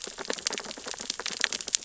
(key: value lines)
label: biophony, sea urchins (Echinidae)
recorder: SoundTrap 600 or HydroMoth